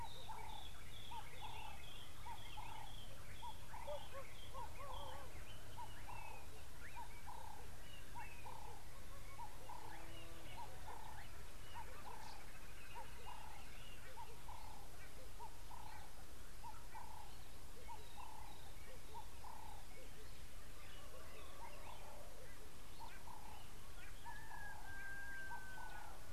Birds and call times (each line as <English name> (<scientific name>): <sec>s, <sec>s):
White-browed Robin-Chat (Cossypha heuglini): 1.0s
Ring-necked Dove (Streptopelia capicola): 9.6s
Green Woodhoopoe (Phoeniculus purpureus): 12.6s
White-bellied Go-away-bird (Corythaixoides leucogaster): 15.9s